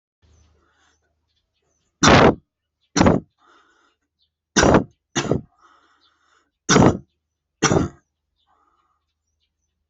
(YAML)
expert_labels:
- quality: poor
  cough_type: unknown
  dyspnea: false
  wheezing: false
  stridor: false
  choking: false
  congestion: false
  nothing: true
  diagnosis: lower respiratory tract infection
  severity: mild
age: 18
gender: male
respiratory_condition: true
fever_muscle_pain: false
status: healthy